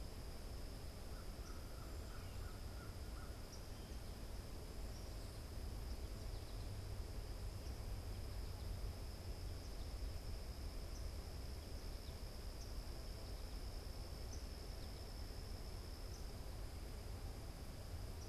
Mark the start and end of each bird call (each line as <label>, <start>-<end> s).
unidentified bird, 0.0-18.3 s
American Crow (Corvus brachyrhynchos), 0.9-3.6 s